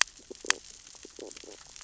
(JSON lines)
{"label": "biophony, stridulation", "recorder": "SoundTrap 600 or HydroMoth"}
{"label": "biophony, sea urchins (Echinidae)", "recorder": "SoundTrap 600 or HydroMoth"}